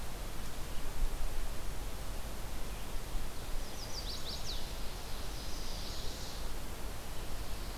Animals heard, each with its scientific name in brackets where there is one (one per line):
Chestnut-sided Warbler (Setophaga pensylvanica)